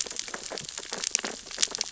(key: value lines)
label: biophony, sea urchins (Echinidae)
recorder: SoundTrap 600 or HydroMoth